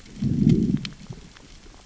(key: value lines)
label: biophony, growl
recorder: SoundTrap 600 or HydroMoth